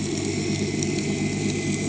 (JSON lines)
{"label": "anthrophony, boat engine", "recorder": "HydroMoth"}